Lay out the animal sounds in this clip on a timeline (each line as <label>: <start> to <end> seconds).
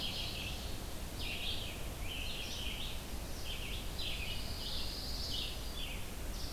Ovenbird (Seiurus aurocapilla): 0.0 to 0.9 seconds
Red-eyed Vireo (Vireo olivaceus): 0.0 to 6.5 seconds
Pine Warbler (Setophaga pinus): 4.0 to 5.4 seconds